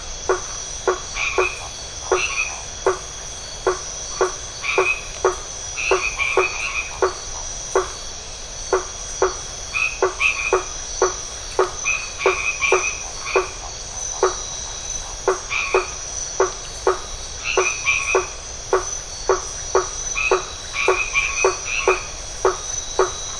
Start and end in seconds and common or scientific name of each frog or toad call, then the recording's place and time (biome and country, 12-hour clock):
0.0	23.3	blacksmith tree frog
0.4	0.6	Phyllomedusa distincta
1.0	2.8	white-edged tree frog
4.6	7.2	white-edged tree frog
9.6	13.6	white-edged tree frog
15.5	16.2	white-edged tree frog
17.3	18.5	white-edged tree frog
19.9	22.4	white-edged tree frog
Atlantic Forest, Brazil, 8:30pm